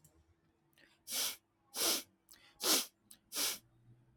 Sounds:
Throat clearing